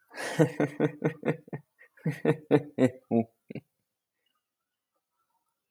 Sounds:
Laughter